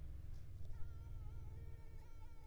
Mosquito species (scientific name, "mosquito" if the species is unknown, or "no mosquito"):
Anopheles arabiensis